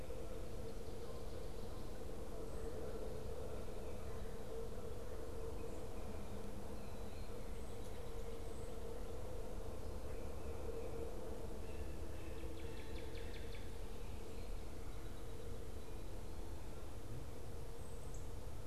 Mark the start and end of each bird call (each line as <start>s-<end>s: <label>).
11.5s-13.6s: unidentified bird
12.4s-14.0s: Northern Cardinal (Cardinalis cardinalis)